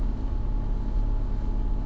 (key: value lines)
label: anthrophony, boat engine
recorder: SoundTrap 300